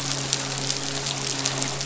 {"label": "biophony, midshipman", "recorder": "SoundTrap 500"}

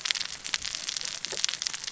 {"label": "biophony, cascading saw", "recorder": "SoundTrap 600 or HydroMoth"}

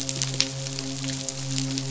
{"label": "biophony, midshipman", "recorder": "SoundTrap 500"}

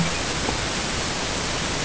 {"label": "ambient", "recorder": "HydroMoth"}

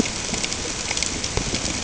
{"label": "ambient", "recorder": "HydroMoth"}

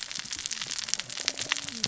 {"label": "biophony, cascading saw", "recorder": "SoundTrap 600 or HydroMoth"}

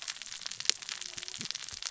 {"label": "biophony, cascading saw", "recorder": "SoundTrap 600 or HydroMoth"}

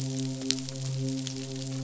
{"label": "biophony, midshipman", "recorder": "SoundTrap 500"}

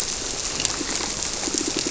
{"label": "biophony, squirrelfish (Holocentrus)", "recorder": "SoundTrap 300"}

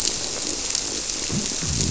{"label": "biophony", "recorder": "SoundTrap 300"}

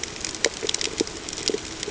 {"label": "ambient", "recorder": "HydroMoth"}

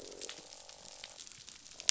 {"label": "biophony, croak", "recorder": "SoundTrap 500"}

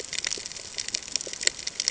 {"label": "ambient", "recorder": "HydroMoth"}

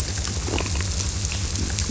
{"label": "biophony", "recorder": "SoundTrap 300"}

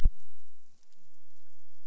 {"label": "biophony", "recorder": "SoundTrap 300"}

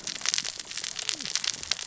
{"label": "biophony, cascading saw", "recorder": "SoundTrap 600 or HydroMoth"}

